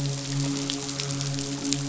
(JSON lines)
{"label": "biophony, midshipman", "recorder": "SoundTrap 500"}